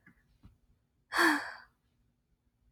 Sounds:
Sigh